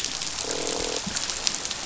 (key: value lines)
label: biophony, croak
recorder: SoundTrap 500